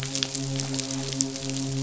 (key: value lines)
label: biophony, midshipman
recorder: SoundTrap 500